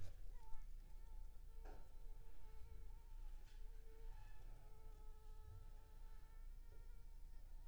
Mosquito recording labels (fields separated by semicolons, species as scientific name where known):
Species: Culex pipiens complex; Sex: female; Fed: unfed; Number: one; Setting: cup